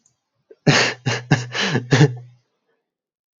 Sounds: Laughter